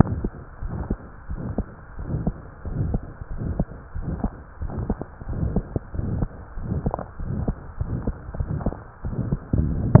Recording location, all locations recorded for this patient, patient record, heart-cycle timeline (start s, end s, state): pulmonary valve (PV)
aortic valve (AV)+pulmonary valve (PV)+tricuspid valve (TV)+mitral valve (MV)
#Age: Child
#Sex: Male
#Height: 130.0 cm
#Weight: 23.2 kg
#Pregnancy status: False
#Murmur: Present
#Murmur locations: aortic valve (AV)+mitral valve (MV)+pulmonary valve (PV)+tricuspid valve (TV)
#Most audible location: aortic valve (AV)
#Systolic murmur timing: Mid-systolic
#Systolic murmur shape: Diamond
#Systolic murmur grading: III/VI or higher
#Systolic murmur pitch: Medium
#Systolic murmur quality: Harsh
#Diastolic murmur timing: nan
#Diastolic murmur shape: nan
#Diastolic murmur grading: nan
#Diastolic murmur pitch: nan
#Diastolic murmur quality: nan
#Outcome: Abnormal
#Campaign: 2015 screening campaign
0.00	0.59	unannotated
0.59	0.71	S1
0.71	0.86	systole
0.86	0.98	S2
0.98	1.26	diastole
1.26	1.40	S1
1.40	1.53	systole
1.53	1.65	S2
1.65	1.96	diastole
1.96	2.08	S1
2.08	2.22	systole
2.22	2.34	S2
2.34	2.64	diastole
2.64	2.78	S1
2.78	2.90	systole
2.90	3.02	S2
3.02	3.28	diastole
3.28	3.41	S1
3.41	3.55	systole
3.55	3.68	S2
3.68	3.92	diastole
3.92	4.06	S1
4.06	4.22	systole
4.22	4.32	S2
4.32	4.57	diastole
4.57	4.72	S1
4.72	4.86	systole
4.86	4.95	S2
4.95	5.26	diastole
5.26	5.39	S1
5.39	5.53	systole
5.53	5.64	S2
5.64	5.92	diastole
5.92	6.05	S1
6.05	6.16	systole
6.16	6.30	S2
6.30	6.55	diastole
6.55	6.67	S1
6.67	6.84	systole
6.84	6.96	S2
6.96	7.19	diastole
7.19	7.30	S1
7.30	7.44	systole
7.44	7.56	S2
7.56	7.78	diastole
7.78	7.89	S1
7.89	8.03	systole
8.03	8.16	S2
8.16	8.37	diastole
8.37	8.47	S1
8.47	8.64	systole
8.64	8.76	S2
8.76	9.02	diastole
9.02	9.12	S1
9.12	10.00	unannotated